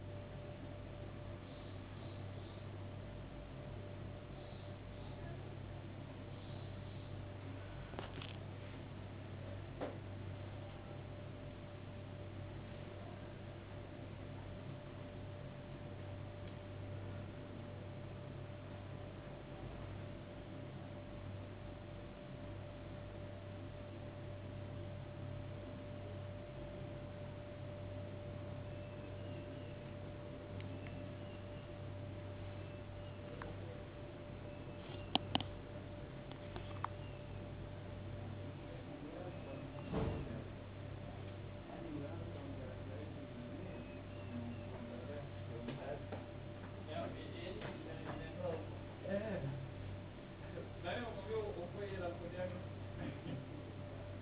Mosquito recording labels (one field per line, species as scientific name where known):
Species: no mosquito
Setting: insect culture